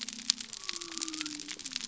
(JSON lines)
{"label": "biophony", "recorder": "SoundTrap 300"}